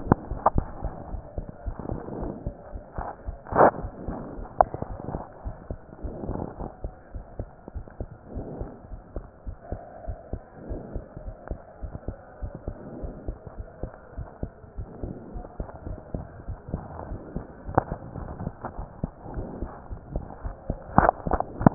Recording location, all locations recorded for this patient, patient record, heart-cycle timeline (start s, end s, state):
pulmonary valve (PV)
aortic valve (AV)+pulmonary valve (PV)+tricuspid valve (TV)+mitral valve (MV)
#Age: Child
#Sex: Male
#Height: 116.0 cm
#Weight: 22.5 kg
#Pregnancy status: False
#Murmur: Absent
#Murmur locations: nan
#Most audible location: nan
#Systolic murmur timing: nan
#Systolic murmur shape: nan
#Systolic murmur grading: nan
#Systolic murmur pitch: nan
#Systolic murmur quality: nan
#Diastolic murmur timing: nan
#Diastolic murmur shape: nan
#Diastolic murmur grading: nan
#Diastolic murmur pitch: nan
#Diastolic murmur quality: nan
#Outcome: Abnormal
#Campaign: 2015 screening campaign
0.00	6.80	unannotated
6.80	6.92	S2
6.92	7.12	diastole
7.12	7.24	S1
7.24	7.37	systole
7.37	7.48	S2
7.48	7.72	diastole
7.72	7.86	S1
7.86	7.98	systole
7.98	8.10	S2
8.10	8.34	diastole
8.34	8.48	S1
8.48	8.58	systole
8.58	8.72	S2
8.72	8.89	diastole
8.89	9.00	S1
9.00	9.14	systole
9.14	9.24	S2
9.24	9.44	diastole
9.44	9.58	S1
9.58	9.68	systole
9.68	9.82	S2
9.82	10.06	diastole
10.06	10.18	S1
10.18	10.30	systole
10.30	10.42	S2
10.42	10.66	diastole
10.66	10.80	S1
10.80	10.90	systole
10.90	11.04	S2
11.04	11.24	diastole
11.24	11.34	S1
11.34	11.49	systole
11.49	11.60	S2
11.60	11.82	diastole
11.82	11.94	S1
11.94	12.06	systole
12.06	12.18	S2
12.18	12.40	diastole
12.40	12.54	S1
12.54	12.66	systole
12.66	12.80	S2
12.80	13.02	diastole
13.02	13.16	S1
13.16	13.26	systole
13.26	13.36	S2
13.36	13.56	diastole
13.56	13.68	S1
13.68	13.81	systole
13.81	13.94	S2
13.94	14.16	diastole
14.16	14.28	S1
14.28	14.40	systole
14.40	14.54	S2
14.54	14.74	diastole
14.74	14.90	S1
14.90	15.01	systole
15.01	15.14	S2
15.14	15.32	diastole
15.32	15.46	S1
15.46	15.58	systole
15.58	15.70	S2
15.70	15.86	diastole
15.86	15.98	S1
15.98	16.10	systole
16.10	16.26	S2
16.26	16.46	diastole
16.46	16.60	S1
16.60	16.72	systole
16.72	16.86	S2
16.86	17.06	diastole
17.06	17.20	S1
17.20	17.32	systole
17.32	17.44	S2
17.44	17.66	diastole
17.66	17.78	S1
17.78	17.90	systole
17.90	18.00	S2
18.00	18.16	diastole
18.16	18.28	S1
18.28	18.40	systole
18.40	18.54	S2
18.54	18.74	diastole
18.74	18.86	S1
18.86	19.00	systole
19.00	19.10	S2
19.10	19.34	diastole
19.34	19.52	S1
19.52	19.58	systole
19.58	19.70	S2
19.70	19.87	diastole
19.87	20.00	S1
20.00	20.12	systole
20.12	20.28	S2
20.28	20.42	diastole
20.42	20.58	S1
20.58	20.68	systole
20.68	20.78	S2
20.78	21.74	unannotated